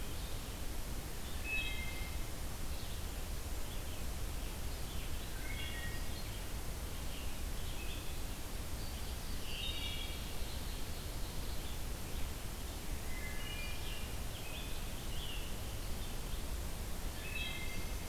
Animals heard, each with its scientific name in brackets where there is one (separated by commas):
Ovenbird (Seiurus aurocapilla), Yellow-rumped Warbler (Setophaga coronata), Red-eyed Vireo (Vireo olivaceus), Scarlet Tanager (Piranga olivacea), Wood Thrush (Hylocichla mustelina)